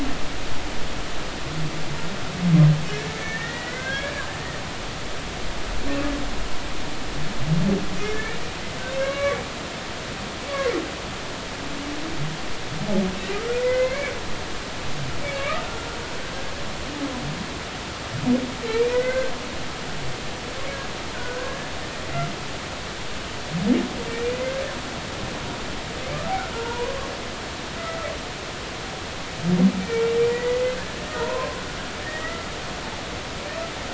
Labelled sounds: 2.9	4.2	humpback whale, 1.4 to 2.4 kHz
8.1	9.5	humpback whale, 1.1 to 2.4 kHz
13.5	14.1	humpback whale, 1.9 to 2.4 kHz
15.2	16.0	humpback whale, 1.1 to 2.5 kHz
18.7	19.3	humpback whale, 1.4 to 2.5 kHz
21.1	21.7	humpback whale, 1.4 to 1.8 kHz
26.5	27.1	humpback whale, 0.86 to 1.2 kHz
27.8	28.0	humpback whale, 1.9 to 2.0 kHz
29.8	31.6	humpback whale, 0.90 to 2.4 kHz
32.0	32.5	humpback whale, 1.2 to 2.1 kHz

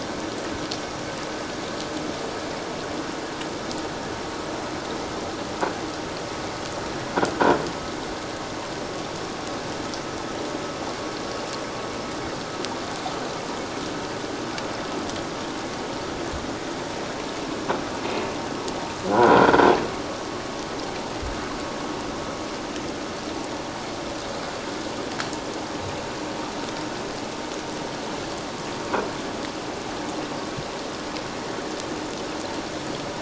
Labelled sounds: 19.1	19.7	croaking sound likely from a nearby submerged object, 0.78 to 1.6 kHz

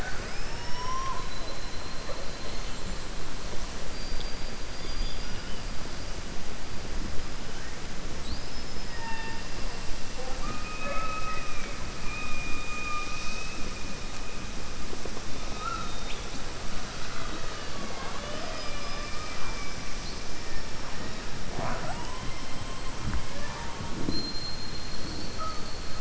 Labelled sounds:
0.0	1.1	killer whale, southern resident, 4.4 to 5.8 kHz

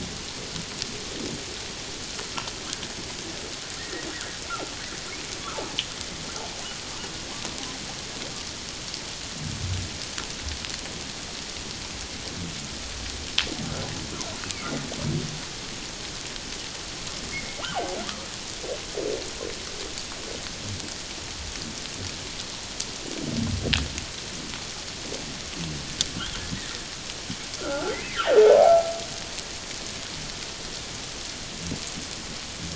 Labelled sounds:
3.8	4.0	humpback whale, 1.7 to 1.9 kHz
17.3	17.6	humpback whale, 2.1 to 2.2 kHz
26.5	26.8	humpback whale, 1.8 to 2.0 kHz
27.6	28.3	humpback whale, 1.1 to 2.2 kHz

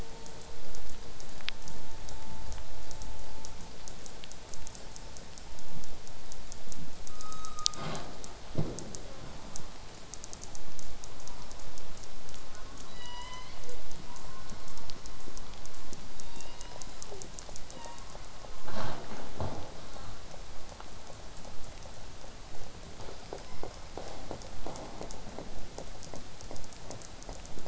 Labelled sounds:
9.0	9.4	killer whale, southern resident, J pod, call S05, 0.39 to 4.4 kHz
12.3	12.9	killer whale, southern resident, J pod, call S04, 0.85 to 1.7 kHz
12.9	13.9	killer whale, southern resident, call S01, 0.46 to 8.0 kHz
19.9	20.1	killer whale, southern resident, J pod, call S05, 0.16 to 8.0 kHz
23.5	24.0	killer whale, southern resident, 1.9 to 2.4 kHz
24.6	25.4	killer whale, southern resident, 1.2 to 2.4 kHz

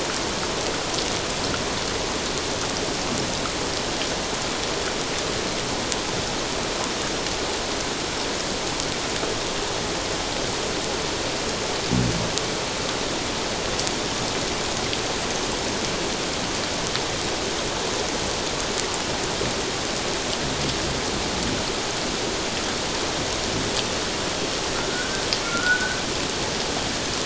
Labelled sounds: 24.9	26.0	sonar likely from a naval vessel, 1.3 to 1.6 kHz

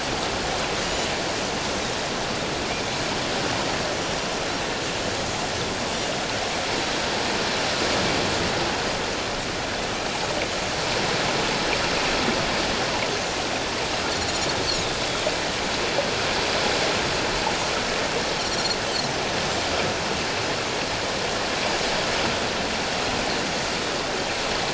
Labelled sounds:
18.4	18.8	Pacific white-sided dolphin, 4.1 to 5.8 kHz

